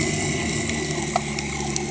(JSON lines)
{"label": "anthrophony, boat engine", "recorder": "HydroMoth"}